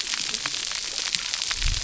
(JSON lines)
{"label": "biophony, cascading saw", "recorder": "SoundTrap 300"}